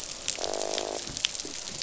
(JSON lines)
{"label": "biophony, croak", "recorder": "SoundTrap 500"}